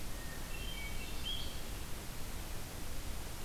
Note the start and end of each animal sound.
0.0s-1.8s: Hermit Thrush (Catharus guttatus)

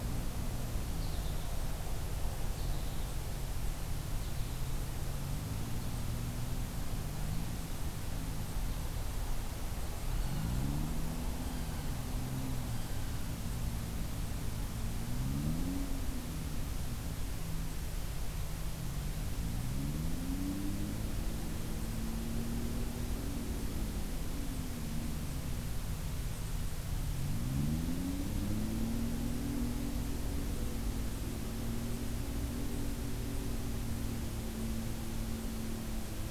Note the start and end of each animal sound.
0.9s-1.6s: American Goldfinch (Spinus tristis)
2.5s-3.2s: American Goldfinch (Spinus tristis)
4.1s-4.9s: American Goldfinch (Spinus tristis)
9.9s-13.3s: Blue Jay (Cyanocitta cristata)

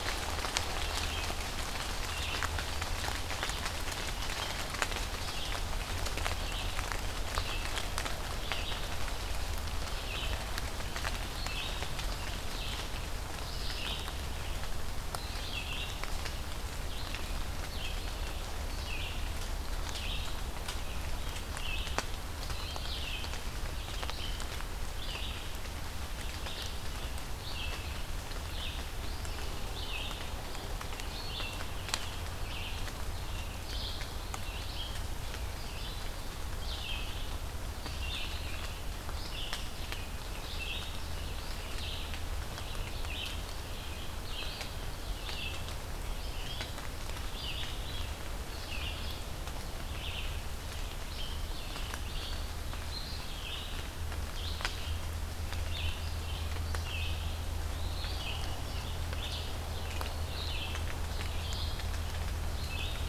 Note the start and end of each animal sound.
0.0s-8.9s: Red-eyed Vireo (Vireo olivaceus)
10.0s-63.1s: Red-eyed Vireo (Vireo olivaceus)
57.6s-58.5s: Eastern Wood-Pewee (Contopus virens)

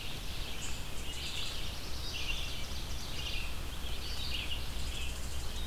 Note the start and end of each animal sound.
0.0s-5.7s: Red-eyed Vireo (Vireo olivaceus)
0.9s-1.7s: unknown mammal
1.1s-2.5s: Black-throated Blue Warbler (Setophaga caerulescens)
1.9s-3.6s: Ovenbird (Seiurus aurocapilla)
4.6s-5.7s: unknown mammal

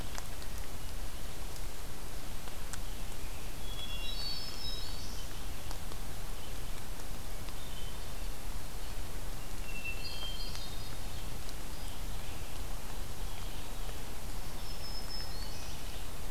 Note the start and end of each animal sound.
2.7s-16.3s: Red-eyed Vireo (Vireo olivaceus)
3.5s-5.0s: Hermit Thrush (Catharus guttatus)
3.8s-5.3s: Black-throated Green Warbler (Setophaga virens)
7.4s-8.2s: Hermit Thrush (Catharus guttatus)
9.4s-11.2s: Hermit Thrush (Catharus guttatus)
14.3s-15.9s: Black-throated Green Warbler (Setophaga virens)

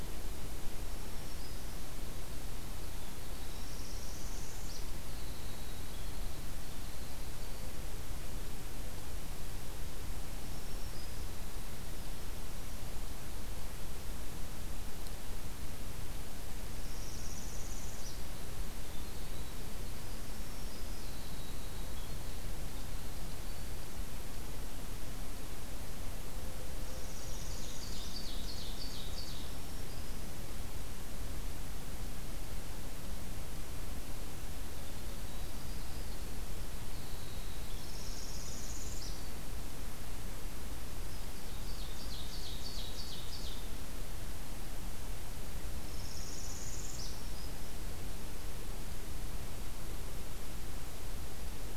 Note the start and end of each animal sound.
0.8s-1.9s: Black-throated Green Warbler (Setophaga virens)
2.6s-7.7s: Winter Wren (Troglodytes hiemalis)
3.5s-4.9s: Northern Parula (Setophaga americana)
10.4s-11.3s: Black-throated Green Warbler (Setophaga virens)
16.7s-18.2s: Northern Parula (Setophaga americana)
18.9s-23.8s: Winter Wren (Troglodytes hiemalis)
26.9s-28.1s: Northern Parula (Setophaga americana)
27.3s-29.4s: Ovenbird (Seiurus aurocapilla)
29.4s-30.2s: Black-throated Green Warbler (Setophaga virens)
34.7s-39.3s: Winter Wren (Troglodytes hiemalis)
37.9s-39.3s: Northern Parula (Setophaga americana)
41.3s-43.7s: Ovenbird (Seiurus aurocapilla)
45.7s-47.3s: Northern Parula (Setophaga americana)
46.8s-47.7s: Black-throated Green Warbler (Setophaga virens)

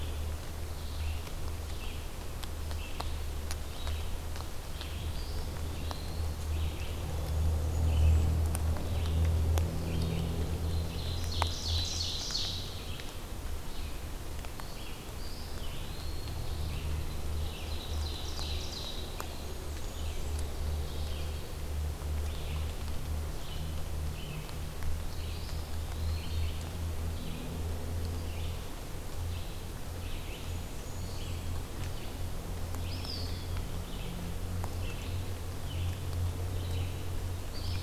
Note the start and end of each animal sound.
0.0s-37.8s: Red-eyed Vireo (Vireo olivaceus)
5.0s-6.4s: Eastern Wood-Pewee (Contopus virens)
7.2s-8.3s: Blackburnian Warbler (Setophaga fusca)
10.4s-13.0s: Ovenbird (Seiurus aurocapilla)
15.2s-16.7s: Eastern Wood-Pewee (Contopus virens)
17.0s-19.3s: Ovenbird (Seiurus aurocapilla)
19.1s-20.6s: Blackburnian Warbler (Setophaga fusca)
20.4s-21.6s: Ovenbird (Seiurus aurocapilla)
25.1s-26.9s: Eastern Wood-Pewee (Contopus virens)
30.3s-31.6s: Blackburnian Warbler (Setophaga fusca)
32.4s-33.8s: Eastern Wood-Pewee (Contopus virens)

